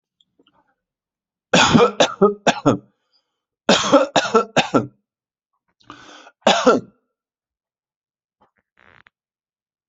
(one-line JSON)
{"expert_labels": [{"quality": "good", "cough_type": "dry", "dyspnea": false, "wheezing": false, "stridor": false, "choking": false, "congestion": false, "nothing": true, "diagnosis": "upper respiratory tract infection", "severity": "mild"}], "age": 47, "gender": "male", "respiratory_condition": false, "fever_muscle_pain": false, "status": "symptomatic"}